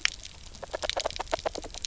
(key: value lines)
label: biophony, knock croak
recorder: SoundTrap 300